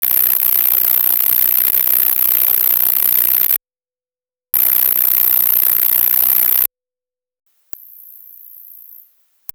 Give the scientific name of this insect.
Tettigonia longispina